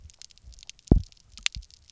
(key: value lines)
label: biophony, double pulse
recorder: SoundTrap 300